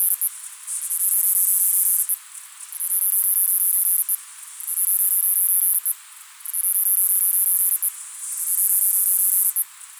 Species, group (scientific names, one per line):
Myopsalta mackinlayi
Cicadidae